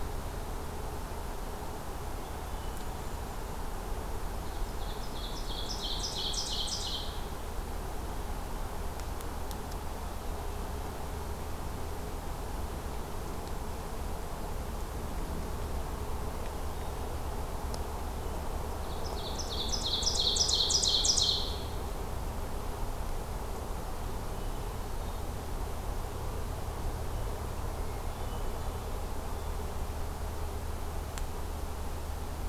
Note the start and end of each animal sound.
[1.91, 3.40] Hermit Thrush (Catharus guttatus)
[2.41, 3.81] Golden-crowned Kinglet (Regulus satrapa)
[4.20, 7.45] Ovenbird (Seiurus aurocapilla)
[18.44, 22.00] Ovenbird (Seiurus aurocapilla)
[26.93, 29.18] Hermit Thrush (Catharus guttatus)

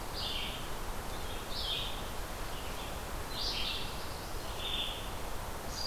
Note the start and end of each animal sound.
[0.00, 2.36] Red-eyed Vireo (Vireo olivaceus)
[3.04, 4.76] Black-throated Blue Warbler (Setophaga caerulescens)

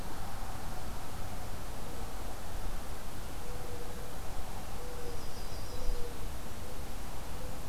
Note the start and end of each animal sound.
[1.59, 6.51] Mourning Dove (Zenaida macroura)
[4.80, 6.05] Yellow-rumped Warbler (Setophaga coronata)

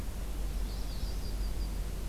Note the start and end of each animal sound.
[0.47, 1.26] Magnolia Warbler (Setophaga magnolia)
[0.65, 1.95] Yellow-rumped Warbler (Setophaga coronata)

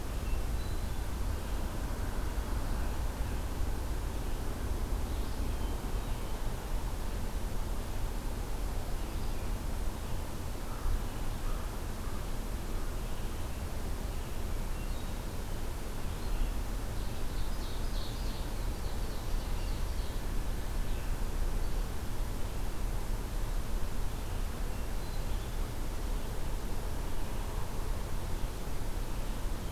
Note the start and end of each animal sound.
[0.11, 0.99] Hermit Thrush (Catharus guttatus)
[16.72, 20.28] Ovenbird (Seiurus aurocapilla)

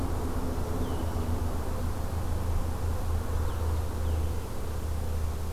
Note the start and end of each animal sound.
[0.00, 5.52] Blue-headed Vireo (Vireo solitarius)

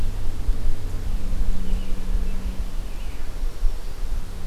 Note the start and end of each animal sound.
[2.97, 4.21] Black-throated Green Warbler (Setophaga virens)

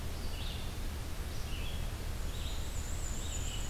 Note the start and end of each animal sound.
[0.00, 3.70] Red-eyed Vireo (Vireo olivaceus)
[2.27, 3.70] Black-and-white Warbler (Mniotilta varia)

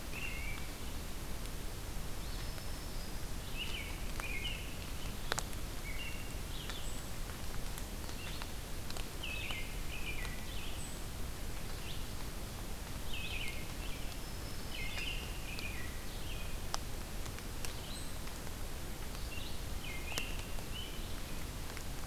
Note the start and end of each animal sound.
[0.00, 0.82] American Robin (Turdus migratorius)
[0.00, 19.68] Red-eyed Vireo (Vireo olivaceus)
[2.22, 3.29] Black-throated Green Warbler (Setophaga virens)
[3.50, 4.86] American Robin (Turdus migratorius)
[5.71, 6.38] American Robin (Turdus migratorius)
[9.23, 10.44] American Robin (Turdus migratorius)
[13.00, 14.13] American Robin (Turdus migratorius)
[14.12, 15.25] Black-throated Green Warbler (Setophaga virens)
[14.64, 15.94] American Robin (Turdus migratorius)
[19.73, 21.12] American Robin (Turdus migratorius)

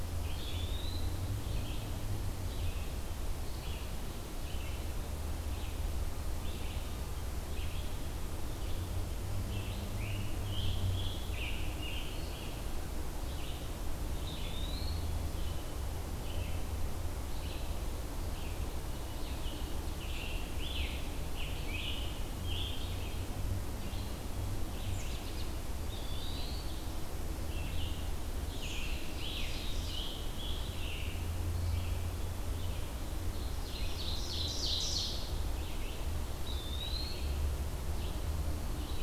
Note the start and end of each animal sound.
[0.00, 2.91] Red-eyed Vireo (Vireo olivaceus)
[0.24, 1.05] Eastern Wood-Pewee (Contopus virens)
[3.36, 39.02] Red-eyed Vireo (Vireo olivaceus)
[9.99, 12.27] Scarlet Tanager (Piranga olivacea)
[14.18, 15.10] Eastern Wood-Pewee (Contopus virens)
[20.36, 22.96] Scarlet Tanager (Piranga olivacea)
[24.86, 25.51] American Robin (Turdus migratorius)
[25.75, 26.64] Eastern Wood-Pewee (Contopus virens)
[28.43, 30.14] Ovenbird (Seiurus aurocapilla)
[28.52, 31.20] Scarlet Tanager (Piranga olivacea)
[33.50, 35.08] Ovenbird (Seiurus aurocapilla)
[36.35, 37.34] Eastern Wood-Pewee (Contopus virens)

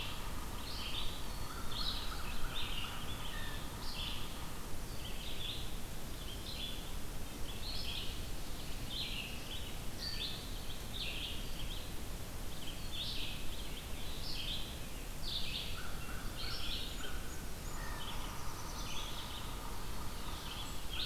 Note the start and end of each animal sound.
[0.00, 4.55] Yellow-bellied Sapsucker (Sphyrapicus varius)
[0.00, 17.13] Red-eyed Vireo (Vireo olivaceus)
[3.21, 3.69] Blue Jay (Cyanocitta cristata)
[9.87, 10.35] Blue Jay (Cyanocitta cristata)
[15.36, 17.78] American Crow (Corvus brachyrhynchos)
[17.49, 21.06] Red-eyed Vireo (Vireo olivaceus)
[17.55, 20.84] Yellow-bellied Sapsucker (Sphyrapicus varius)
[17.85, 19.23] Black-throated Blue Warbler (Setophaga caerulescens)

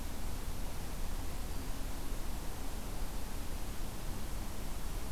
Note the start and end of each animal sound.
[1.20, 2.09] Black-throated Green Warbler (Setophaga virens)

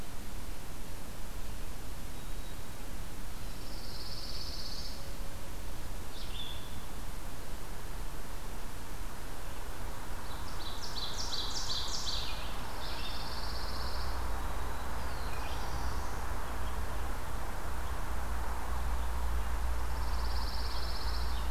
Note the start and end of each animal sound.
[1.98, 2.87] Black-throated Green Warbler (Setophaga virens)
[3.33, 5.15] Pine Warbler (Setophaga pinus)
[5.96, 21.50] Red-eyed Vireo (Vireo olivaceus)
[10.12, 12.57] Ovenbird (Seiurus aurocapilla)
[12.56, 14.43] Pine Warbler (Setophaga pinus)
[14.28, 16.54] Black-throated Blue Warbler (Setophaga caerulescens)
[19.64, 21.43] Pine Warbler (Setophaga pinus)

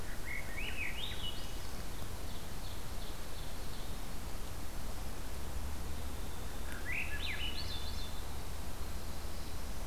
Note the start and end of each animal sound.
[0.00, 1.82] Swainson's Thrush (Catharus ustulatus)
[1.68, 4.03] Ovenbird (Seiurus aurocapilla)
[3.50, 9.86] Winter Wren (Troglodytes hiemalis)
[6.66, 8.18] Swainson's Thrush (Catharus ustulatus)

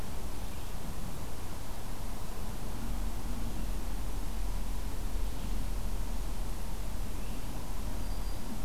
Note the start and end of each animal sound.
[7.79, 8.49] Black-throated Green Warbler (Setophaga virens)

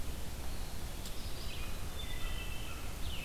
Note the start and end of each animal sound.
[0.00, 3.25] Red-eyed Vireo (Vireo olivaceus)
[0.27, 1.92] Eastern Wood-Pewee (Contopus virens)
[1.79, 3.02] Wood Thrush (Hylocichla mustelina)
[2.46, 3.25] American Robin (Turdus migratorius)

